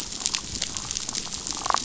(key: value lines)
label: biophony, damselfish
recorder: SoundTrap 500